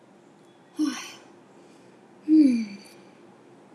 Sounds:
Sigh